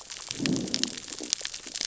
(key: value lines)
label: biophony, growl
recorder: SoundTrap 600 or HydroMoth